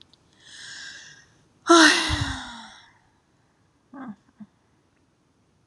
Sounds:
Sigh